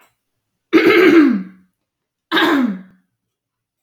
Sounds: Throat clearing